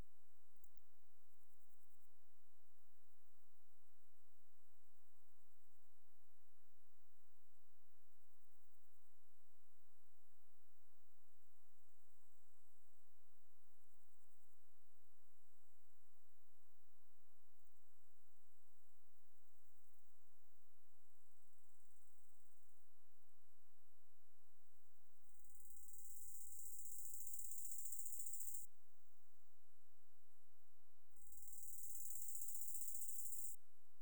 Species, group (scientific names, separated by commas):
Chorthippus biguttulus, Orthoptera